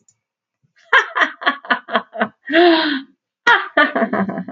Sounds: Laughter